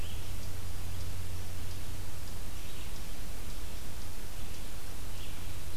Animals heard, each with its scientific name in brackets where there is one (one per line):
Eastern Chipmunk (Tamias striatus)
Red-eyed Vireo (Vireo olivaceus)